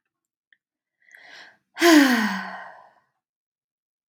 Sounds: Sigh